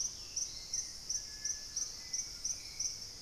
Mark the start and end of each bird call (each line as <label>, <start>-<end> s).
Dusky-capped Greenlet (Pachysylvia hypoxantha), 0.0-0.6 s
Hauxwell's Thrush (Turdus hauxwelli), 0.0-3.2 s
White-throated Toucan (Ramphastos tucanus), 0.0-3.2 s